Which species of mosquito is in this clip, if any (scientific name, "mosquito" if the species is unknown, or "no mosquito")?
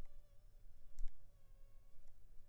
Anopheles funestus s.s.